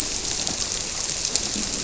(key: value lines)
label: biophony
recorder: SoundTrap 300

label: biophony, grouper
recorder: SoundTrap 300